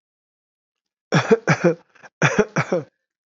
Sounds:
Cough